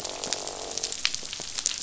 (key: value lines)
label: biophony, croak
recorder: SoundTrap 500